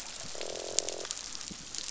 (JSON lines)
{"label": "biophony, croak", "recorder": "SoundTrap 500"}